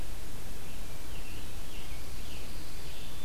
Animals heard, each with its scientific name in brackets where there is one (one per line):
Scarlet Tanager (Piranga olivacea)
Pine Warbler (Setophaga pinus)
Black-throated Blue Warbler (Setophaga caerulescens)